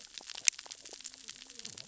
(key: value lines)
label: biophony, cascading saw
recorder: SoundTrap 600 or HydroMoth